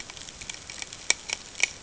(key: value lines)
label: ambient
recorder: HydroMoth